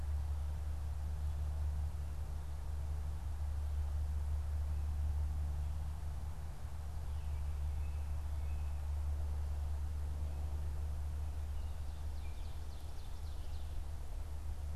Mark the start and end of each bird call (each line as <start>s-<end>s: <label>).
12.1s-13.8s: Ovenbird (Seiurus aurocapilla)